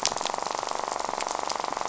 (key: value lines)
label: biophony, rattle
recorder: SoundTrap 500